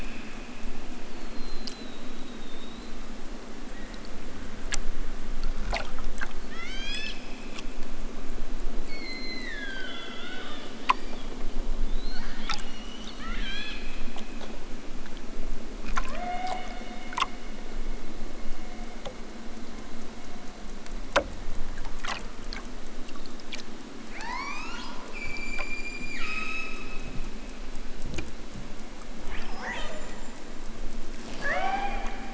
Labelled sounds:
6.5	7.3	killer whale, southern Alaska resident, 0.96 to 8.0 kHz
8.7	10.6	killer whale, southern Alaska resident, 0.92 to 6.8 kHz
13.1	14.3	killer whale, southern Alaska resident, 1.1 to 8.0 kHz
15.7	17.2	killer whale, southern Alaska resident, 0.37 to 4.2 kHz
24.1	27.4	killer whale, southern Alaska resident, 0.46 to 8.0 kHz
29.2	30.4	killer whale, southern Alaska resident, 0.37 to 8.0 kHz
31.2	32.2	killer whale, southern Alaska resident, 0.32 to 5.0 kHz

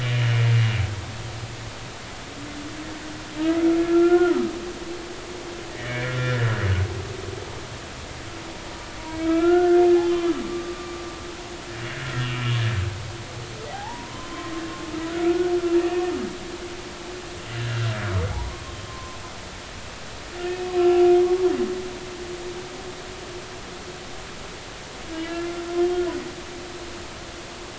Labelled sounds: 3.4	4.5	humpback whale, 1.2 to 1.5 kHz
5.7	6.4	humpback whale, 1.3 to 3.6 kHz
9.2	11.0	humpback whale, 1.1 to 3.2 kHz
13.7	14.5	humpback whale, 0.80 to 1.1 kHz
15.2	15.5	humpback whale, 1.3 to 1.5 kHz
18.3	19.2	humpback whale, 0.80 to 1.1 kHz
20.5	21.2	humpback whale, 1.3 to 2.6 kHz
25.1	26.0	humpback whale, 2.8 to 3.3 kHz

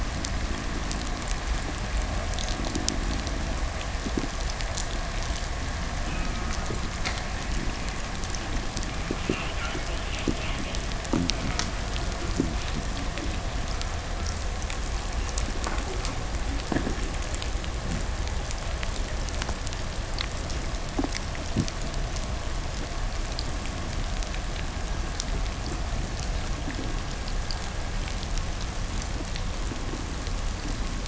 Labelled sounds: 0.0	3.7	fish, 0 to 0.56 kHz
5.6	14.7	killer whale, 0.98 to 3.8 kHz

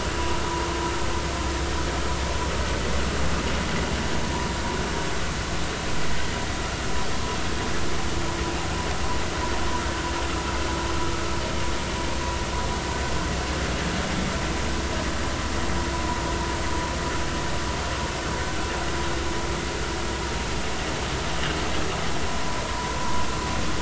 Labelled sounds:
22.7	22.9	vessel noise, 0.90 to 1.1 kHz

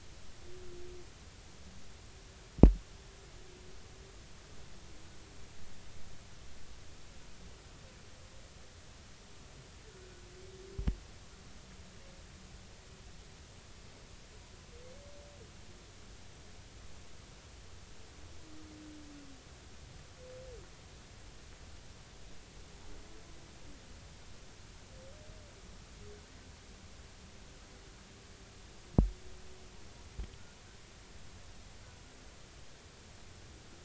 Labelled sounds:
9.8	10.1	humpback whale, 1.4 to 1.6 kHz

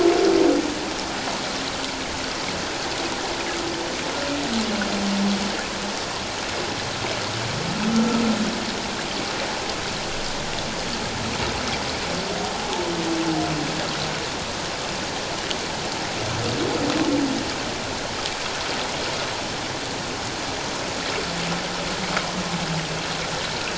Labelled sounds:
12.5	12.9	humpback whale, 0.78 to 0.94 kHz

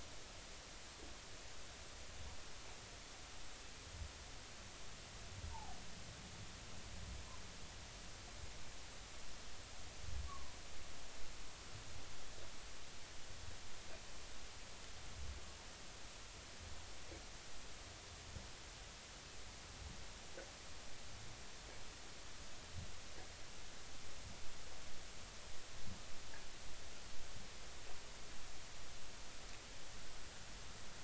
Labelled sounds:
5.5	5.8	humpback whale, 0.80 to 1.1 kHz
10.3	10.6	humpback whale, 0.93 to 1.2 kHz

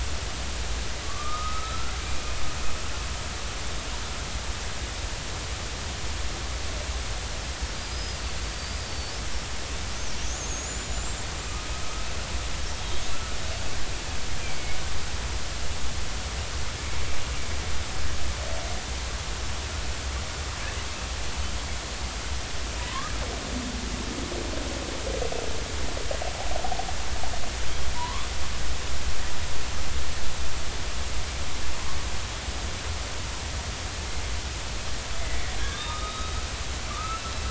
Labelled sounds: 1.0	2.0	killer whale, northern resident, 1.1 to 1.4 kHz
7.7	9.1	killer whale, northern resident, 4.4 to 5.2 kHz
10.4	11.2	killer whale, northern resident, 6.3 to 7.6 kHz
14.4	14.8	killer whale, northern resident, 2.1 to 2.5 kHz
22.8	23.1	killer whale, northern resident, 0.93 to 1.3 kHz
27.9	28.3	killer whale, northern resident, 0.90 to 1.2 kHz
35.6	36.4	killer whale, northern resident, 1.1 to 3.9 kHz

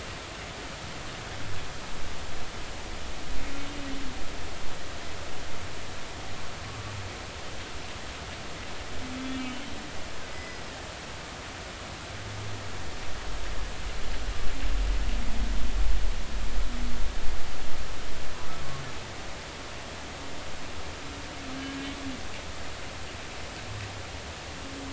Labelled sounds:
9.3	9.6	humpback whale, 2.7 to 2.9 kHz
10.3	10.6	humpback whale, 1.9 to 5.1 kHz

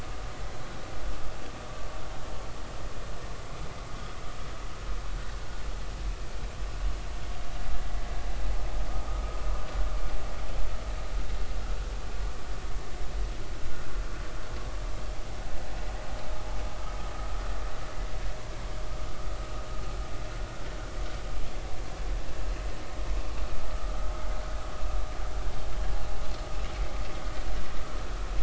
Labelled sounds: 9.1	9.4	vessel noise, 1.2 to 1.3 kHz

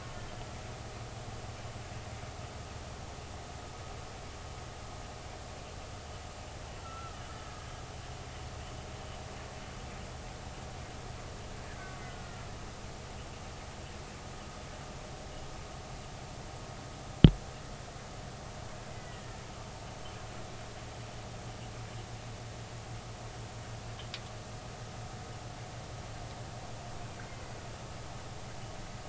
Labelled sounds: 6.8	7.2	killer whale, Bigg's (transient), 1.2 to 1.4 kHz
11.6	12.5	killer whale, Bigg's (transient), 1.3 to 1.9 kHz
18.9	19.2	killer whale, Bigg's (transient), 1.9 to 2.0 kHz

